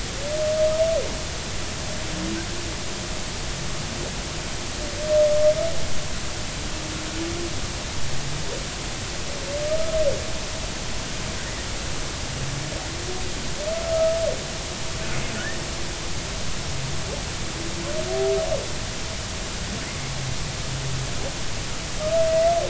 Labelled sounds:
22.3	22.6	humpback whale, 1.9 to 2.0 kHz

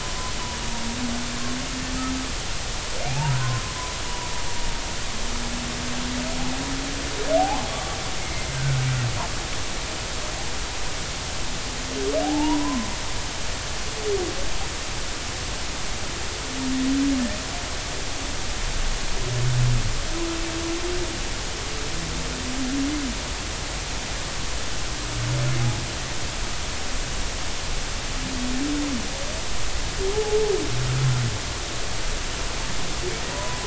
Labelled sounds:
3.1	3.6	humpback whale, 0.80 to 2.9 kHz
7.4	8.0	humpback whale, 0.80 to 1.2 kHz
8.2	8.8	humpback whale, 1.4 to 2.2 kHz
12.2	13.0	humpback whale, 0.80 to 1.1 kHz
30.1	30.4	humpback whale, 0.80 to 0.90 kHz

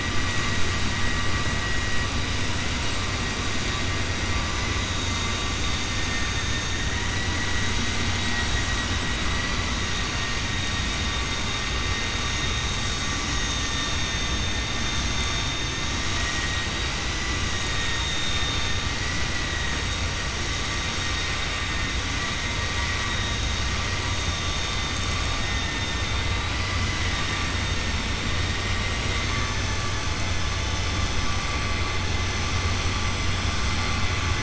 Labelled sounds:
6.0	6.7	vessel noise, 1.7 to 2.8 kHz

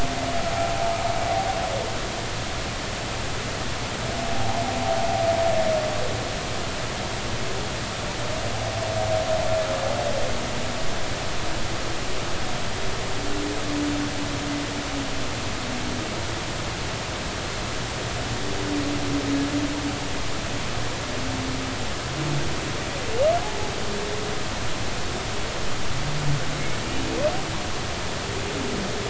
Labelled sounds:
4.3	4.6	humpback whale, 0.80 to 1.0 kHz

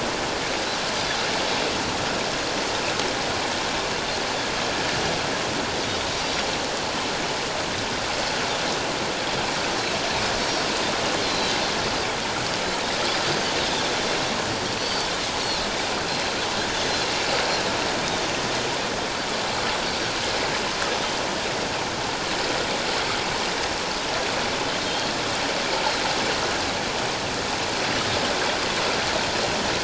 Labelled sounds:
11.2	11.5	Pacific white-sided dolphin, 3.9 to 4.3 kHz
14.8	15.1	Pacific white-sided dolphin, 4.4 to 4.7 kHz
19.8	20.2	Pacific white-sided dolphin, 4.4 to 4.6 kHz
24.8	25.1	Pacific white-sided dolphin, 3.1 to 3.3 kHz

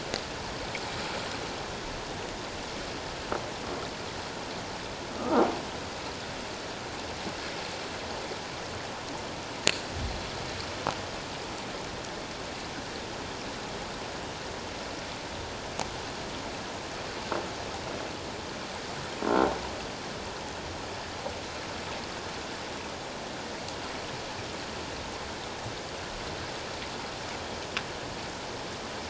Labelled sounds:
5.2	5.5	croaking sound likely from a nearby submerged object, 1.2 to 1.5 kHz

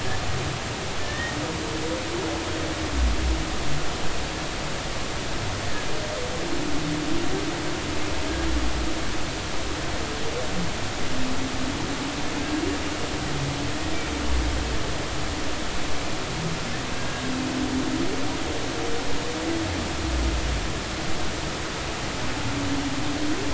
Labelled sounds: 1.0	1.4	humpback whale, 1.7 to 1.9 kHz
16.9	17.2	humpback whale, 1.6 to 1.7 kHz

